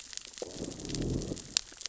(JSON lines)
{"label": "biophony, growl", "recorder": "SoundTrap 600 or HydroMoth"}